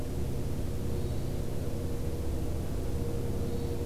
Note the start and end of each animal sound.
[0.84, 1.35] Hermit Thrush (Catharus guttatus)
[3.37, 3.86] Hermit Thrush (Catharus guttatus)

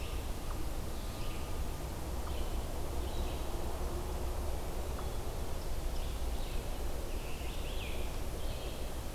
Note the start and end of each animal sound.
[0.00, 9.14] Red-eyed Vireo (Vireo olivaceus)

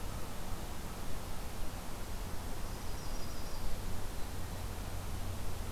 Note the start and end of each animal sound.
[2.47, 3.79] Yellow-rumped Warbler (Setophaga coronata)

